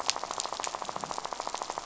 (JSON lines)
{"label": "biophony, rattle", "recorder": "SoundTrap 500"}